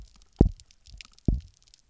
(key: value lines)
label: biophony, double pulse
recorder: SoundTrap 300